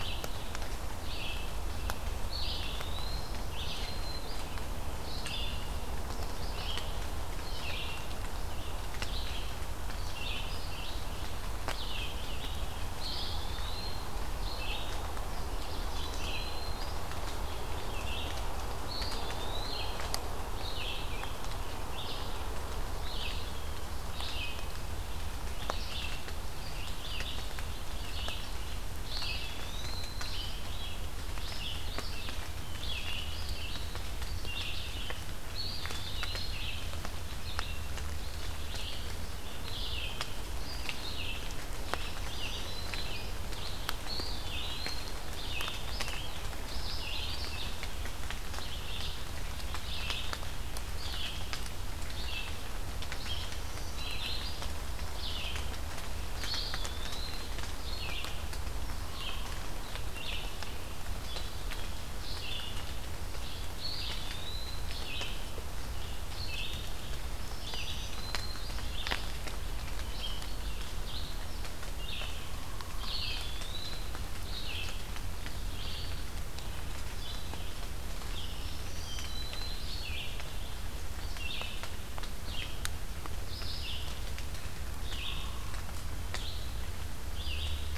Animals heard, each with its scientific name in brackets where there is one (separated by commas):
Red-eyed Vireo (Vireo olivaceus), Eastern Wood-Pewee (Contopus virens), Black-throated Green Warbler (Setophaga virens)